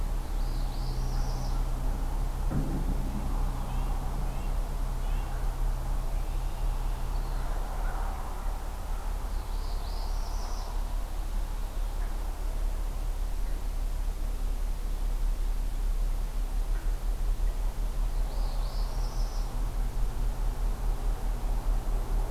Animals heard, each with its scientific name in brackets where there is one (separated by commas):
Northern Parula (Setophaga americana), Red-breasted Nuthatch (Sitta canadensis)